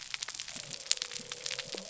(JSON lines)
{"label": "biophony", "recorder": "SoundTrap 300"}